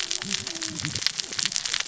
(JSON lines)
{"label": "biophony, cascading saw", "recorder": "SoundTrap 600 or HydroMoth"}